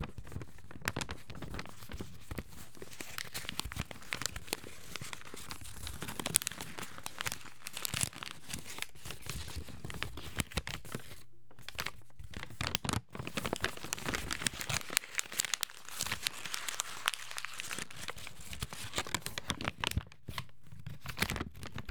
Is paper rustling?
yes